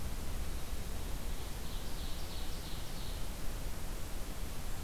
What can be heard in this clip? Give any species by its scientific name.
Seiurus aurocapilla